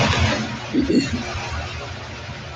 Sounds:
Throat clearing